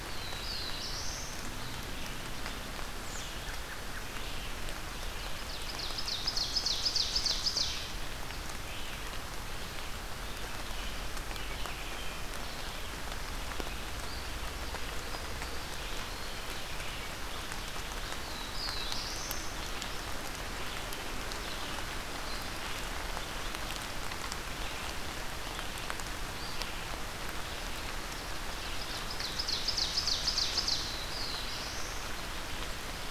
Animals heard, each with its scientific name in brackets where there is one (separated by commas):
Black-throated Blue Warbler (Setophaga caerulescens), Red-eyed Vireo (Vireo olivaceus), Ovenbird (Seiurus aurocapilla), American Robin (Turdus migratorius), Eastern Wood-Pewee (Contopus virens)